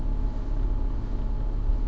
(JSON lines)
{"label": "anthrophony, boat engine", "recorder": "SoundTrap 300"}